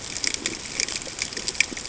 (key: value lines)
label: ambient
recorder: HydroMoth